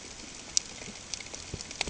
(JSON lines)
{"label": "ambient", "recorder": "HydroMoth"}